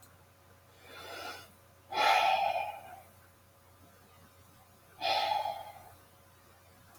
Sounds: Sigh